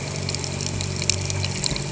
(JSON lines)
{"label": "anthrophony, boat engine", "recorder": "HydroMoth"}